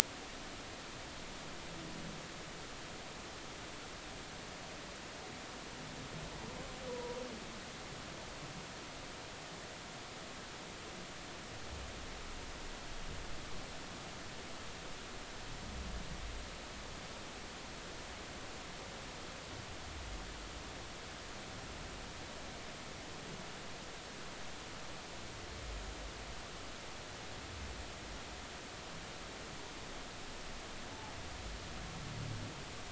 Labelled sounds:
6.9	7.2	humpback whale, 0.90 to 1.0 kHz

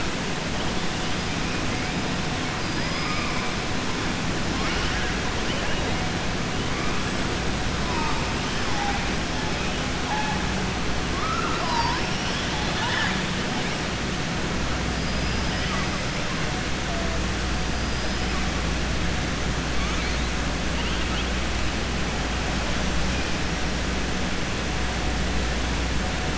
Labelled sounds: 2.8	3.4	killer whale, southern resident, 1.2 to 2.5 kHz
11.1	12.0	killer whale, southern resident, 0.64 to 1.9 kHz
15.0	15.6	killer whale, southern resident, 4.7 to 5.3 kHz

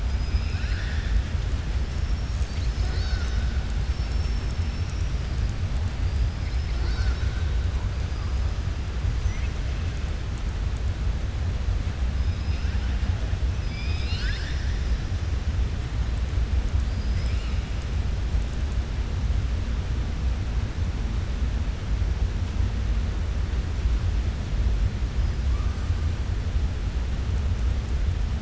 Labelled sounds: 0.0	1.2	killer whale, southern resident, 1.5 to 5.7 kHz
2.8	3.4	killer whale, southern resident, 0.48 to 2.0 kHz
3.9	5.1	killer whale, southern resident, 5.3 to 8.0 kHz

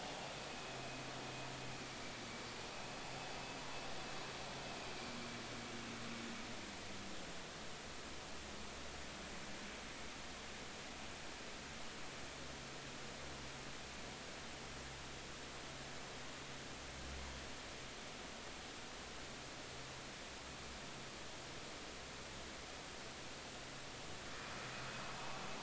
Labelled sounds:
0.5	0.8	vessel noise, 2.5 to 2.6 kHz
2.7	3.0	vessel noise, 2.5 to 2.6 kHz

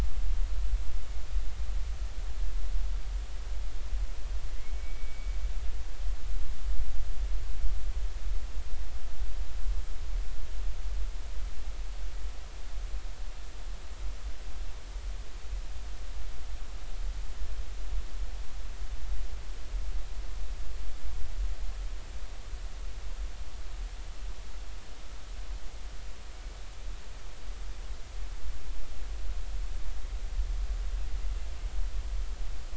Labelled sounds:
4.6	5.3	killer whale, northern resident, A clan, AA subclan, call N05i, 2.0 to 2.4 kHz

